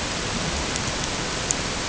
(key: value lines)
label: ambient
recorder: HydroMoth